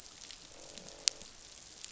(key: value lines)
label: biophony, croak
recorder: SoundTrap 500